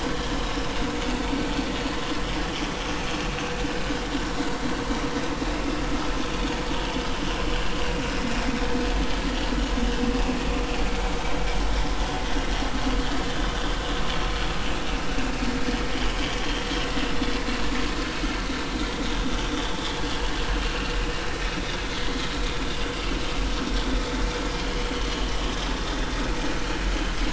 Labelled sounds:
0.1	0.3	vessel noise, 1.5 to 1.8 kHz
14.8	15.1	vessel noise, 2.6 to 2.9 kHz
16.1	16.4	vessel noise, 3.1 to 3.3 kHz
19.5	19.8	vessel noise, 3.3 to 3.6 kHz

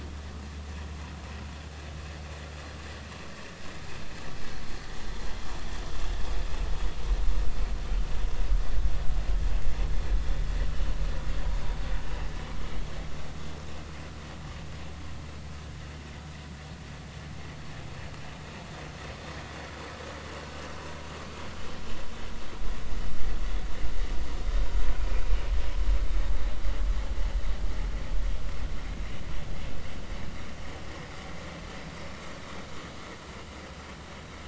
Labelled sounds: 25.0	25.2	vessel noise, 2.3 to 2.5 kHz

